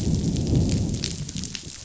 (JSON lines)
{"label": "biophony, growl", "recorder": "SoundTrap 500"}